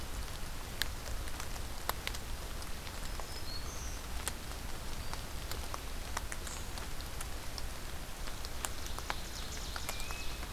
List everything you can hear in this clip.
Black-throated Green Warbler, Ovenbird